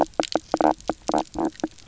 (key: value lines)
label: biophony, knock croak
recorder: SoundTrap 300